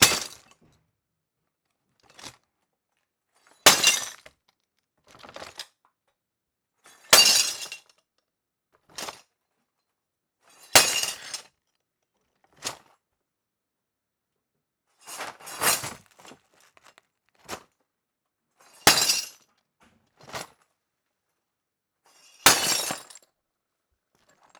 What is the distance of the glass shattering?
close